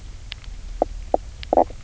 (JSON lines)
{"label": "biophony, knock croak", "recorder": "SoundTrap 300"}